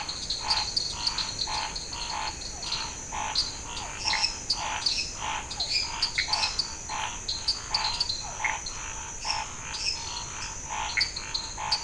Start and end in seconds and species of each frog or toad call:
0.0	11.8	dwarf tree frog
0.0	11.8	Scinax fuscovarius
2.4	8.4	Physalaemus cuvieri
3.9	10.7	lesser tree frog
6.2	6.3	Pithecopus azureus
10.9	11.1	Pithecopus azureus
Cerrado, Brazil, ~8pm

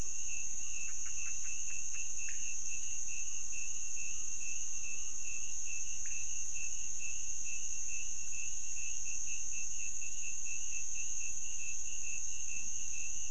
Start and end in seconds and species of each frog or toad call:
5.9	6.4	pointedbelly frog
Cerrado, Brazil, ~1am

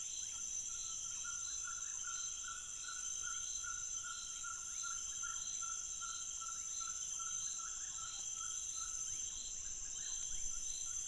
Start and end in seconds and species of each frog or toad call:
0.1	0.4	rufous frog
3.2	3.7	rufous frog
4.3	5.7	rufous frog
6.5	7.2	rufous frog
9.0	10.5	rufous frog
Cerrado, Brazil, 2am

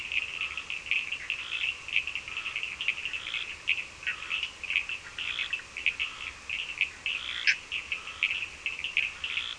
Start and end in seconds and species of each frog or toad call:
0.0	9.5	Scinax perereca
0.0	9.5	Cochran's lime tree frog
7.3	7.7	Bischoff's tree frog
Atlantic Forest, Brazil, 10:30pm

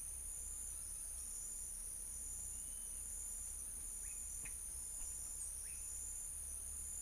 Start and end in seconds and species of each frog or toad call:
4.0	4.3	pointedbelly frog
5.6	6.0	pointedbelly frog
Cerrado, Brazil, ~6pm

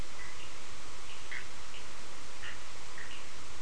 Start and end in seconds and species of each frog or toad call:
0.0	3.6	Bischoff's tree frog
1.7	3.6	Cochran's lime tree frog
Atlantic Forest, Brazil, ~2am

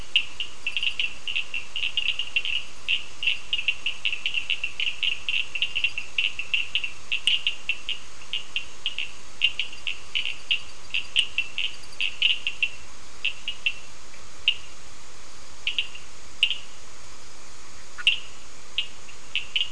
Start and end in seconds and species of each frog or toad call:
0.0	16.7	Cochran's lime tree frog
18.0	18.1	Bischoff's tree frog
18.0	18.3	Cochran's lime tree frog
18.7	19.7	Cochran's lime tree frog
Atlantic Forest, Brazil, ~8pm

